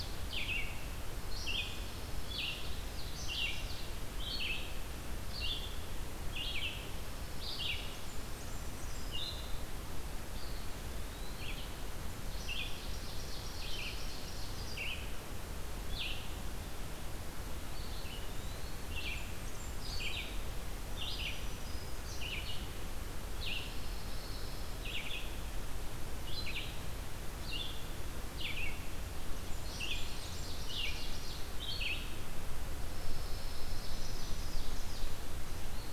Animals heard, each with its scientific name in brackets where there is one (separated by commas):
Ovenbird (Seiurus aurocapilla), Red-eyed Vireo (Vireo olivaceus), Black-throated Green Warbler (Setophaga virens), Blackburnian Warbler (Setophaga fusca), Eastern Wood-Pewee (Contopus virens), Pine Warbler (Setophaga pinus)